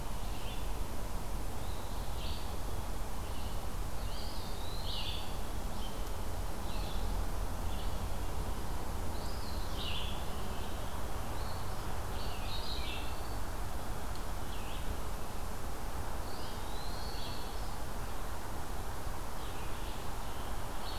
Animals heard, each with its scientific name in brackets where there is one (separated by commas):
Black-capped Chickadee (Poecile atricapillus), Eastern Wood-Pewee (Contopus virens), Red-eyed Vireo (Vireo olivaceus), Eastern Phoebe (Sayornis phoebe), Scarlet Tanager (Piranga olivacea)